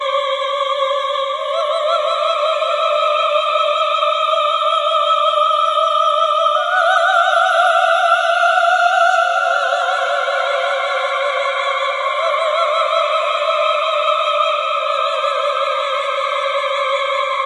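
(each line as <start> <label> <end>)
0.0 A haunting, breathy female voice adds a posh quality to the scene. 17.5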